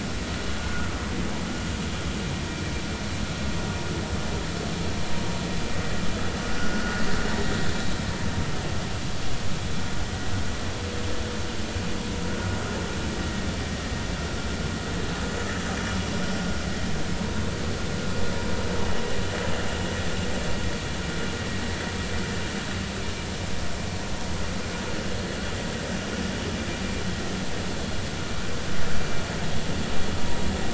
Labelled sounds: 6.5	7.0	vessel noise, 1.4 to 1.6 kHz
13.2	13.5	vessel noise, 1.8 to 1.9 kHz

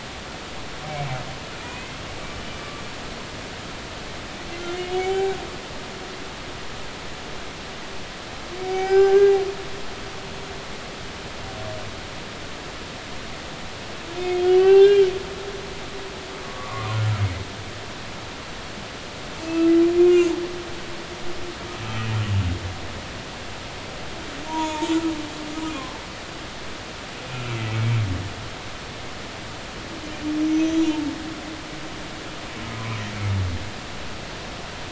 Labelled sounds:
1.6	1.9	humpback whale, 2.3 to 2.6 kHz
4.5	5.4	humpback whale, 0.80 to 7.0 kHz
8.6	9.3	humpback whale, 0.80 to 5.2 kHz
14.4	15.1	humpback whale, 0.80 to 4.1 kHz
16.4	17.0	humpback whale, 0.90 to 1.2 kHz
19.4	20.3	humpback whale, 2.3 to 2.7 kHz
21.8	22.1	humpback whale, 2.5 to 2.7 kHz
24.5	24.9	humpback whale, 0.86 to 3.5 kHz
25.7	26.0	humpback whale, 0.99 to 1.1 kHz
30.4	31.1	humpback whale, 0.86 to 6.2 kHz
32.6	33.0	humpback whale, 0.96 to 1.3 kHz

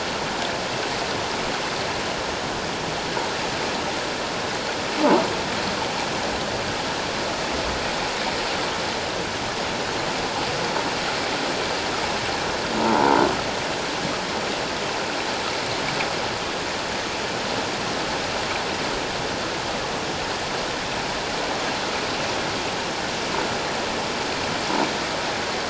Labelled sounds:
12.8	13.2	croaking sound likely from a nearby submerged object, 0.84 to 1.0 kHz

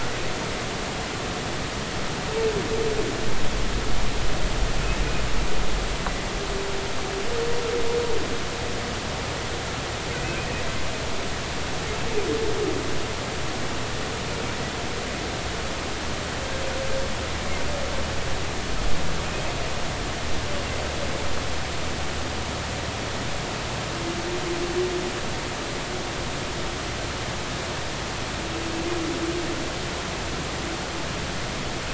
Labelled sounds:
10.1	10.6	humpback whale, 2.3 to 2.7 kHz

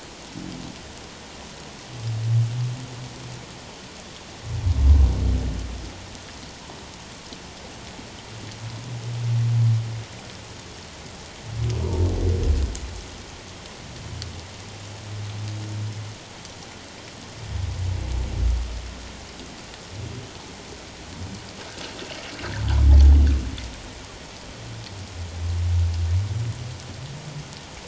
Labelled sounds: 11.8	12.1	humpback whale, 0.88 to 1.0 kHz

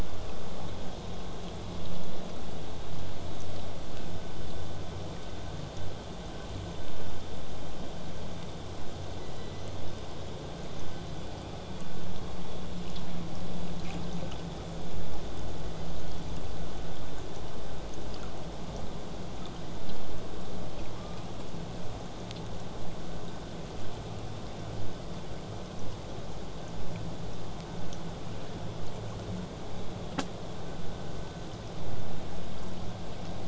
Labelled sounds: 9.2	10.3	killer whale, southern resident, call S01, 1.8 to 6.7 kHz
15.8	16.5	killer whale, southern resident, 2.9 to 6.6 kHz
20.9	21.3	killer whale, 0.73 to 2.6 kHz

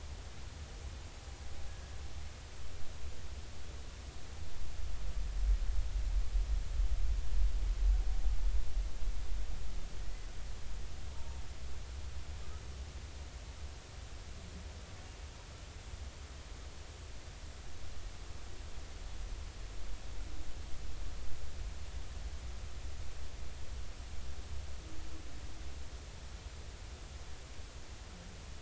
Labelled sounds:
10.0	10.3	humpback whale, 1.8 to 2.1 kHz
11.1	11.4	humpback whale, 0.86 to 1.1 kHz

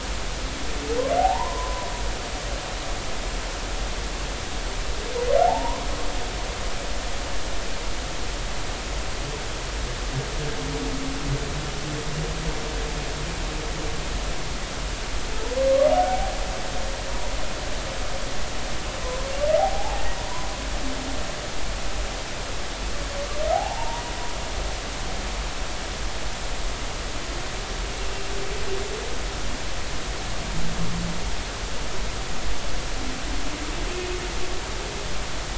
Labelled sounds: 1.2	1.9	humpback whale, 0.80 to 1.1 kHz
5.4	5.9	humpback whale, 0.80 to 1.2 kHz
15.9	16.3	humpback whale, 0.80 to 0.83 kHz
19.6	20.1	humpback whale, 0.80 to 0.93 kHz
23.5	24.0	humpback whale, 0.80 to 0.99 kHz

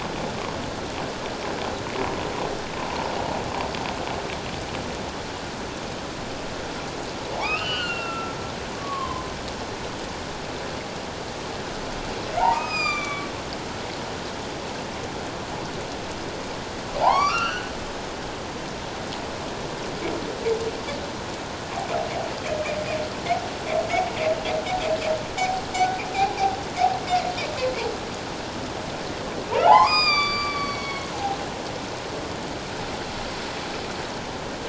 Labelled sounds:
7.3	8.3	humpback whale, 0.78 to 4.7 kHz
8.8	9.3	humpback whale, 0.97 to 1.2 kHz
12.4	13.3	humpback whale, 0.78 to 7.5 kHz
17.0	17.7	humpback whale, 0.78 to 6.0 kHz
29.6	31.1	humpback whale, 0.78 to 7.5 kHz

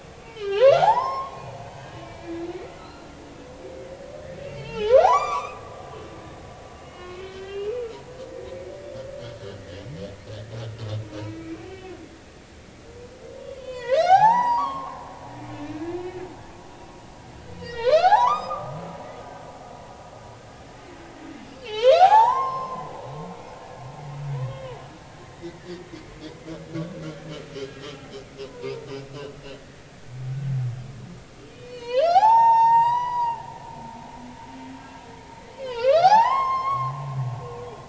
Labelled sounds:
0.2	2.5	humpback whale, 0.80 to 6.2 kHz
2.8	3.1	humpback whale, 1.2 to 4.3 kHz
4.4	5.6	humpback whale, 0.80 to 7.3 kHz
6.8	7.8	humpback whale, 1.0 to 4.4 kHz
9.6	9.8	humpback whale, 1.6 to 2.0 kHz
11.2	11.9	humpback whale, 2.2 to 2.8 kHz
13.5	15.0	humpback whale, 0.80 to 7.9 kHz
15.9	16.2	humpback whale, 2.4 to 2.7 kHz
17.6	18.8	humpback whale, 0.80 to 6.3 kHz
21.6	22.9	humpback whale, 0.80 to 6.0 kHz
23.3	23.5	humpback whale, 2.3 to 2.5 kHz
24.4	24.8	humpback whale, 2.4 to 3.8 kHz
25.2	25.7	humpback whale, 1.7 to 2.1 kHz
28.5	28.9	humpback whale, 0.86 to 1.1 kHz
29.5	29.8	humpback whale, 1.7 to 2.0 kHz
31.5	33.4	humpback whale, 0.80 to 7.8 kHz
35.6	36.9	humpback whale, 0.80 to 6.5 kHz
37.6	37.8	humpback whale, 3.2 to 3.5 kHz

